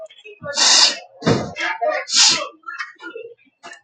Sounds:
Sniff